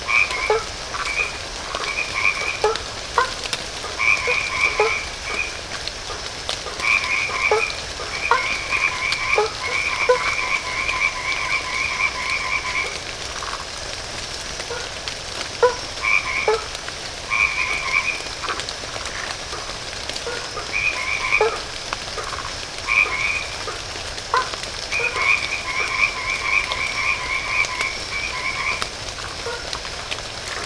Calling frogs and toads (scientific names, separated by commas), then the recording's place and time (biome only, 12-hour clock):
Boana faber, Boana albomarginata
Atlantic Forest, 8:30pm